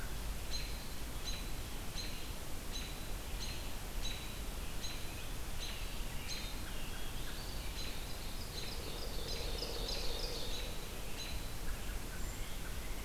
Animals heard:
Ovenbird (Seiurus aurocapilla)
Black-capped Chickadee (Poecile atricapillus)
American Robin (Turdus migratorius)

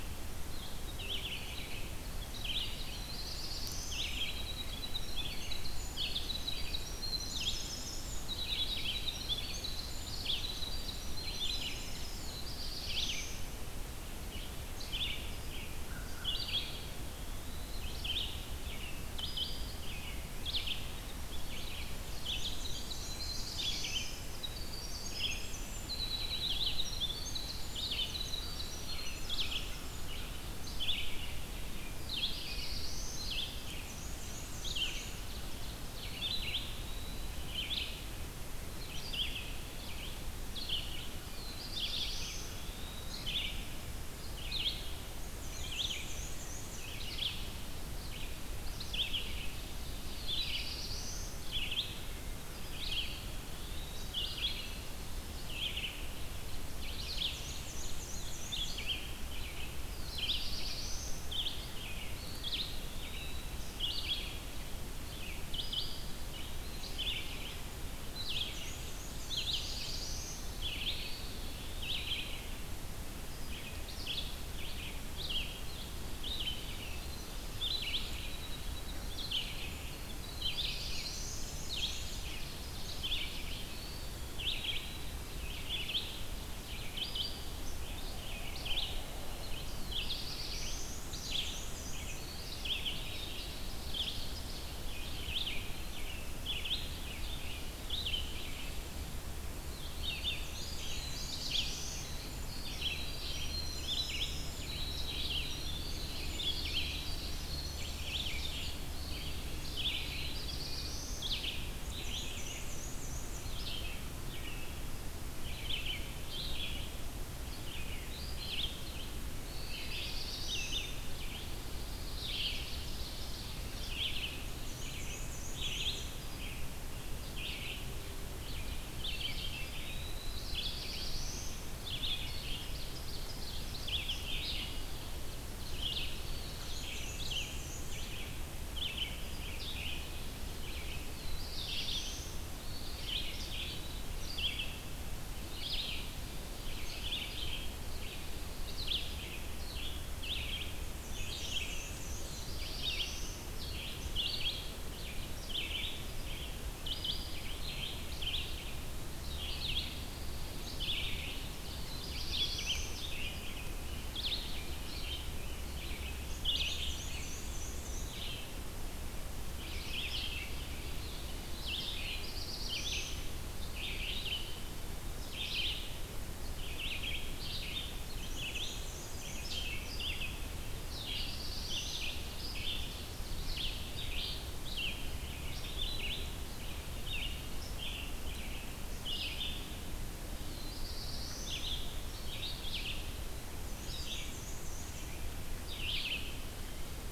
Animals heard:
Black-throated Blue Warbler (Setophaga caerulescens)
American Crow (Corvus brachyrhynchos)
Red-eyed Vireo (Vireo olivaceus)
Winter Wren (Troglodytes hiemalis)
Black-and-white Warbler (Mniotilta varia)
Pine Warbler (Setophaga pinus)
Ovenbird (Seiurus aurocapilla)
Eastern Wood-Pewee (Contopus virens)

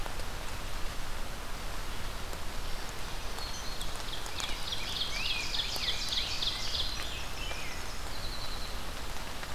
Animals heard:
Black-throated Green Warbler (Setophaga virens)
Ovenbird (Seiurus aurocapilla)
Winter Wren (Troglodytes hiemalis)
Rose-breasted Grosbeak (Pheucticus ludovicianus)

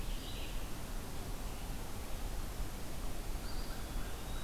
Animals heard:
Eastern Wood-Pewee (Contopus virens)
Red-eyed Vireo (Vireo olivaceus)

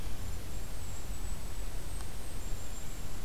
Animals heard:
Golden-crowned Kinglet (Regulus satrapa)

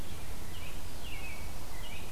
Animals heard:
American Robin (Turdus migratorius)

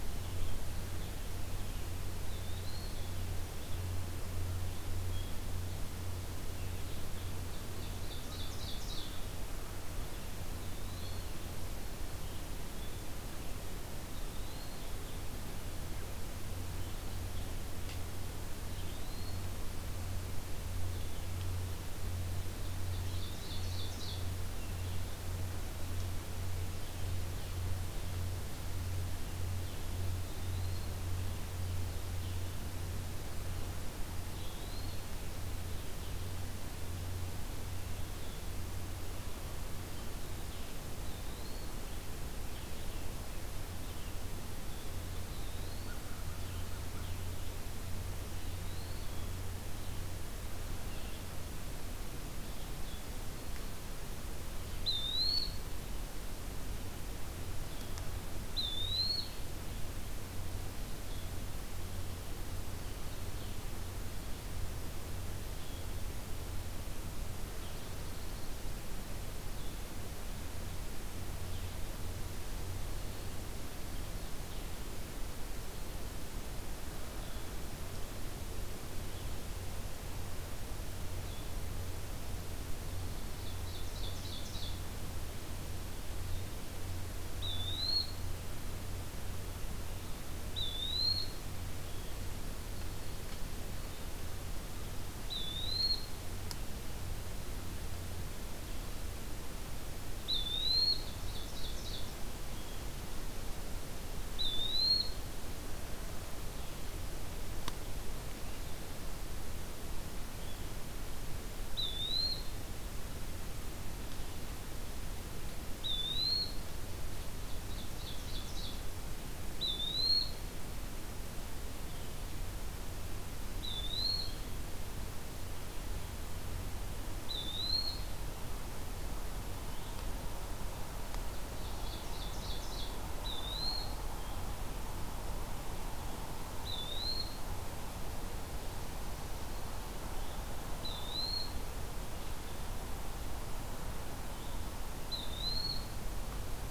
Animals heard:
Eastern Wood-Pewee (Contopus virens)
American Crow (Corvus brachyrhynchos)
Blue-headed Vireo (Vireo solitarius)
Ovenbird (Seiurus aurocapilla)
Dark-eyed Junco (Junco hyemalis)

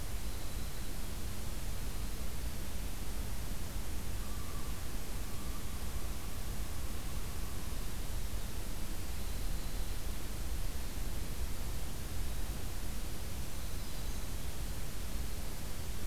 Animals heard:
Winter Wren (Troglodytes hiemalis)
Black-throated Green Warbler (Setophaga virens)
Common Loon (Gavia immer)

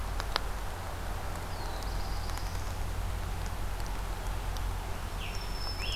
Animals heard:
Black-throated Blue Warbler (Setophaga caerulescens)
Scarlet Tanager (Piranga olivacea)
Black-throated Green Warbler (Setophaga virens)

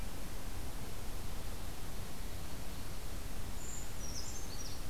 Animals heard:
Brown Creeper (Certhia americana)

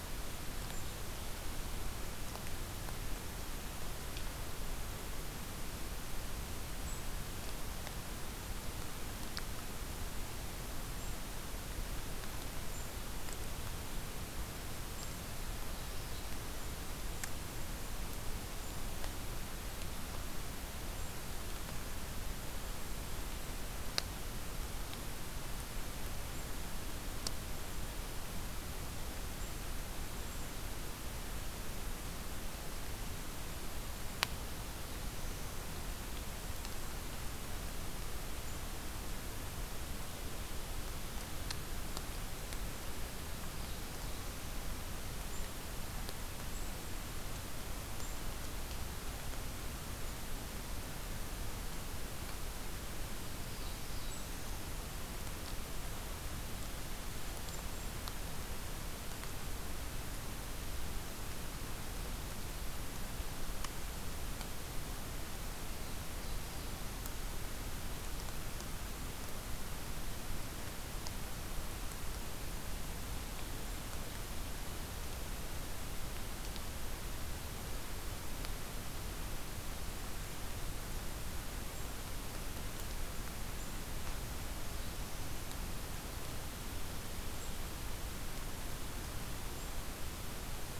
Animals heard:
Cedar Waxwing (Bombycilla cedrorum)
Golden-crowned Kinglet (Regulus satrapa)
Black-throated Blue Warbler (Setophaga caerulescens)

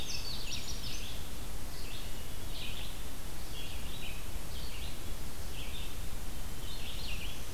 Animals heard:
Red-eyed Vireo (Vireo olivaceus)
Indigo Bunting (Passerina cyanea)
Black-throated Green Warbler (Setophaga virens)

